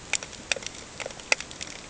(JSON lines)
{"label": "ambient", "recorder": "HydroMoth"}